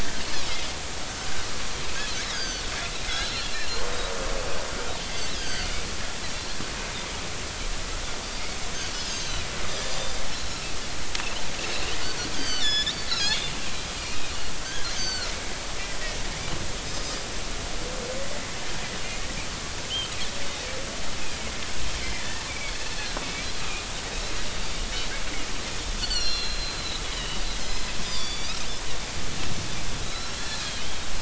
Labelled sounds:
2.1	2.7	Pacific white-sided dolphin, 1.4 to 6.6 kHz
3.1	3.5	Pacific white-sided dolphin, 3.9 to 4.4 kHz
5.3	5.7	Pacific white-sided dolphin, 1.5 to 5.0 kHz
8.9	10.0	Pacific white-sided dolphin, 3.8 to 7.4 kHz
10.4	10.7	Pacific white-sided dolphin, 5.2 to 5.5 kHz
12.3	13.5	Pacific white-sided dolphin, 1.4 to 7.2 kHz
14.0	15.3	Pacific white-sided dolphin, 1.3 to 6.5 kHz
16.8	17.2	Pacific white-sided dolphin, 4.9 to 5.2 kHz
19.0	19.3	Pacific white-sided dolphin, 2.0 to 2.3 kHz
22.0	22.7	Pacific white-sided dolphin, 1.9 to 2.5 kHz
26.0	27.4	Pacific white-sided dolphin, 2.7 to 6.1 kHz
28.0	28.6	Pacific white-sided dolphin, 2.2 to 5.8 kHz
30.0	31.0	Pacific white-sided dolphin, 2.9 to 5.5 kHz

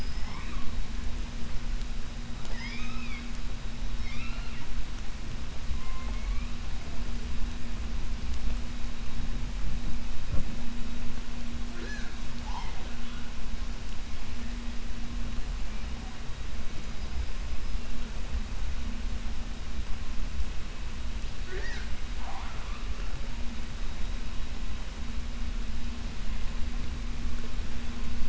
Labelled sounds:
2.3	3.3	killer whale, 0.58 to 7.1 kHz
3.9	4.7	killer whale, 0.70 to 5.6 kHz
12.3	12.9	killer whale, 0.59 to 6.3 kHz

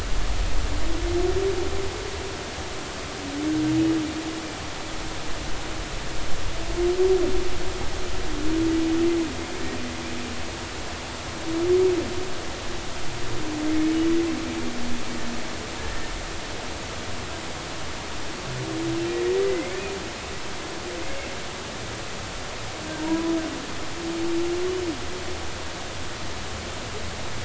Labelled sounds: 19.3	19.8	humpback whale, 1.9 to 2.3 kHz
22.9	23.3	humpback whale, 0.90 to 1.0 kHz

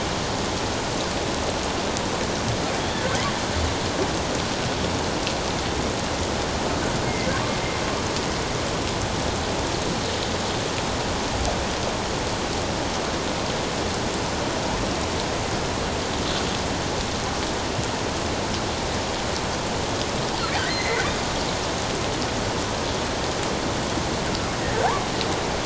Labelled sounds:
7.0	7.3	killer whale, offshore, 2.0 to 2.2 kHz
20.6	21.1	killer whale, offshore, 1.8 to 4.3 kHz

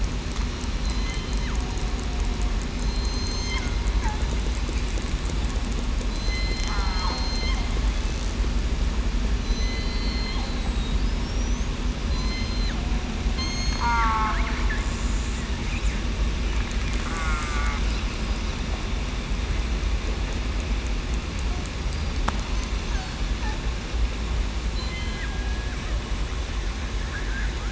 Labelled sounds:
0.8	1.2	killer whale, southern resident, 4.0 to 4.2 kHz
2.8	3.5	killer whale, southern resident, 4.1 to 4.2 kHz
6.1	7.5	killer whale, southern resident, 0.84 to 4.3 kHz
9.4	11.7	killer whale, southern resident, 3.0 to 8.0 kHz
12.0	12.6	killer whale, southern resident, 4.8 to 8.0 kHz
13.3	13.9	killer whale, southern resident, 3.1 to 8.0 kHz
17.0	17.5	killer whale, southern resident, 1.3 to 1.5 kHz
24.7	25.2	killer whale, southern resident, 4.0 to 4.2 kHz

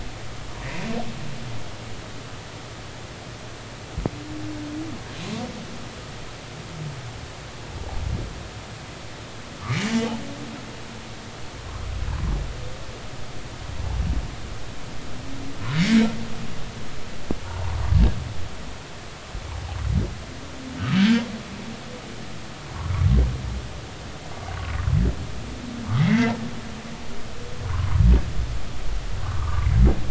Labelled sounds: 9.7	9.9	humpback whale, 2.0 to 2.4 kHz
21.0	21.2	humpback whale, 1.5 to 1.7 kHz
26.0	26.4	humpback whale, 1.8 to 2.2 kHz
27.6	28.0	humpback whale, 0.93 to 1.3 kHz
29.2	29.7	humpback whale, 0.90 to 1.3 kHz

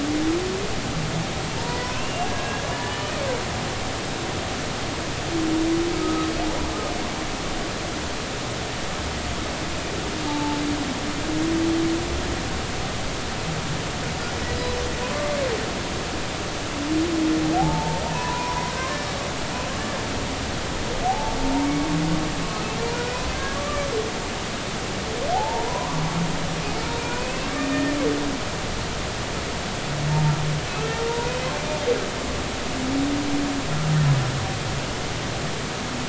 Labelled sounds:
1.5	3.1	humpback whale, 0.86 to 3.1 kHz
6.0	6.3	humpback whale, 1.2 to 1.3 kHz
10.3	10.6	humpback whale, 0.83 to 0.93 kHz
17.6	18.7	humpback whale, 0.80 to 5.5 kHz
21.1	21.9	humpback whale, 0.80 to 2.3 kHz
23.3	23.9	humpback whale, 1.1 to 1.7 kHz
25.3	26.0	humpback whale, 0.80 to 1.2 kHz
27.0	27.8	humpback whale, 2.3 to 2.8 kHz
30.1	30.3	humpback whale, 0.86 to 0.96 kHz
31.0	31.2	humpback whale, 3.6 to 3.8 kHz

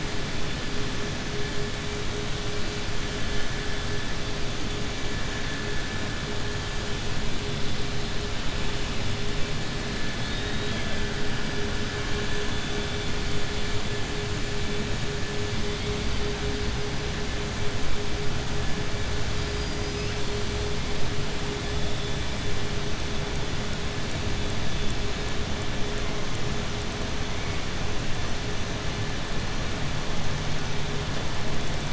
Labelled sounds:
19.4	20.1	killer whale, southern resident, 4.8 to 6.1 kHz

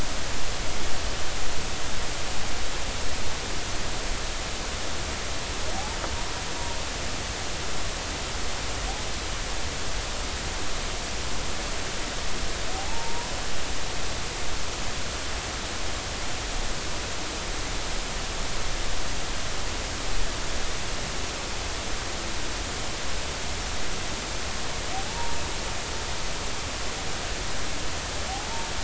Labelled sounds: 12.7	13.3	humpback whale, 0.80 to 1.0 kHz
25.1	25.4	humpback whale, 0.83 to 0.99 kHz

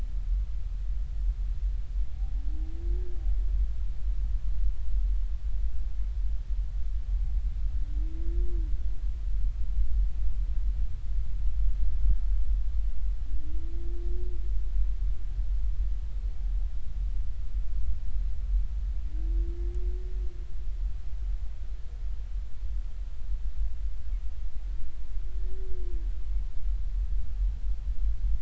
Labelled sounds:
2.2	2.4	humpback whale, 0.80 to 0.86 kHz

